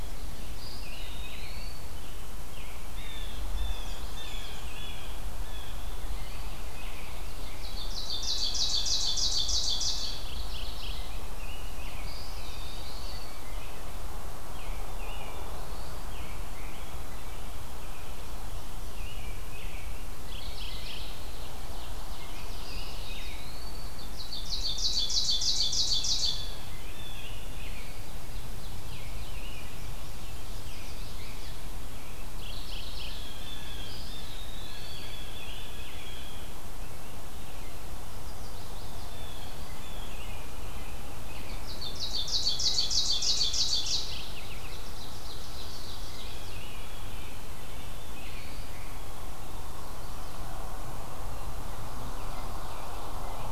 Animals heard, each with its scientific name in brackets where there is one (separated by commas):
Black-throated Blue Warbler (Setophaga caerulescens), Ovenbird (Seiurus aurocapilla), Blue Jay (Cyanocitta cristata), Blackburnian Warbler (Setophaga fusca), Mourning Warbler (Geothlypis philadelphia), Chestnut-sided Warbler (Setophaga pensylvanica), Eastern Wood-Pewee (Contopus virens), American Robin (Turdus migratorius)